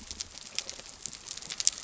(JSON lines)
{"label": "biophony", "recorder": "SoundTrap 300"}